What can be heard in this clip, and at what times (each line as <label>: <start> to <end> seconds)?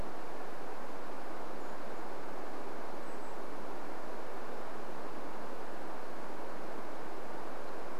Brown Creeper call: 0 to 2 seconds
Chestnut-backed Chickadee call: 2 to 4 seconds